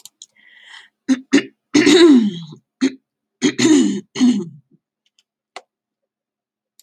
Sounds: Throat clearing